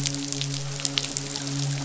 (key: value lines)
label: biophony, midshipman
recorder: SoundTrap 500